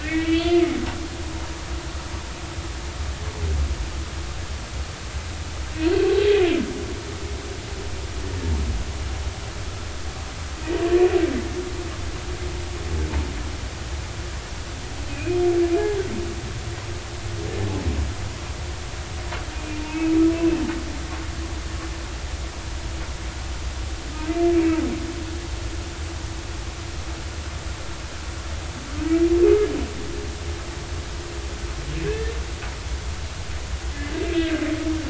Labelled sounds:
0.0	1.6	humpback whale, 1.8 to 3.5 kHz
15.1	15.4	humpback whale, 2.3 to 2.6 kHz
19.5	20.1	humpback whale, 2.4 to 2.7 kHz
24.5	24.8	humpback whale, 2.2 to 2.3 kHz
32.0	32.3	humpback whale, 1.5 to 1.9 kHz
34.4	34.6	humpback whale, 1.5 to 1.7 kHz

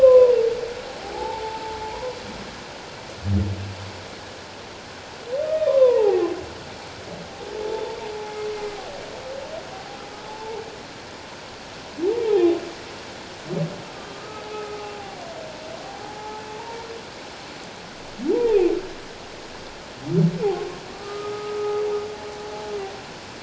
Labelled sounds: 0.0	2.2	humpback whale, 0.78 to 1.1 kHz
5.5	6.3	humpback whale, 0.78 to 1.3 kHz
7.6	8.0	humpback whale, 0.84 to 1.0 kHz
8.6	8.8	humpback whale, 2.0 to 2.1 kHz
10.2	10.6	humpback whale, 0.81 to 0.97 kHz
14.1	14.9	humpback whale, 1.2 to 1.3 kHz
15.8	16.4	humpback whale, 0.78 to 0.94 kHz
18.5	18.8	humpback whale, 2.2 to 2.8 kHz
20.9	21.9	humpback whale, 1.1 to 1.3 kHz

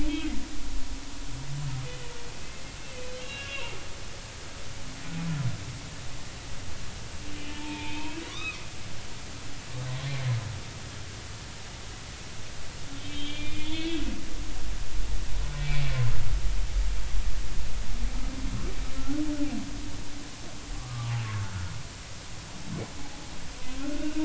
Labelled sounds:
0.1	0.3	humpback whale, 3.1 to 3.4 kHz
1.8	2.1	humpback whale, 1.8 to 2.0 kHz
3.2	3.8	humpback whale, 1.6 to 2.9 kHz
7.5	8.6	humpback whale, 0.83 to 3.5 kHz
12.9	14.0	humpback whale, 2.0 to 3.8 kHz
15.6	16.1	humpback whale, 0.99 to 2.4 kHz
19.0	19.2	humpback whale, 1.3 to 1.5 kHz
20.8	21.1	humpback whale, 0.96 to 1.3 kHz

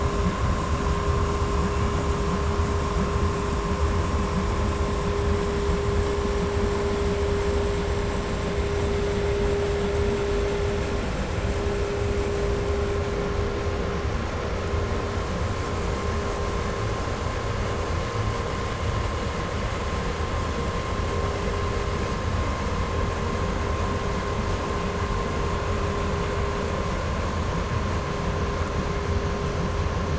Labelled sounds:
1.2	2.4	killer whale, 1.7 to 3.5 kHz

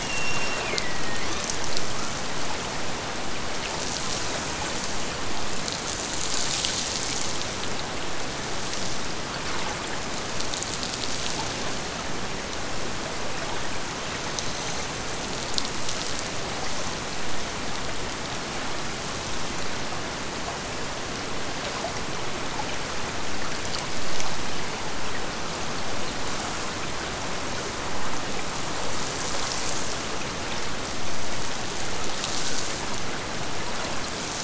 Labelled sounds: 0.0	1.2	killer whale, Bigg's (transient), Gulf of Alaska transient, 1.6 to 5.7 kHz

